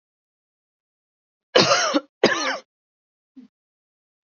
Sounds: Cough